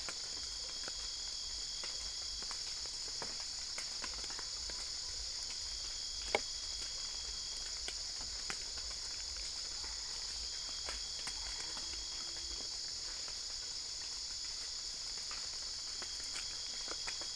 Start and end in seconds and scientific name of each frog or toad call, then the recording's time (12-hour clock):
9.6	12.1	Boana albopunctata
2:30am